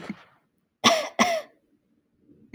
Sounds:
Cough